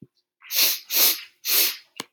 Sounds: Sniff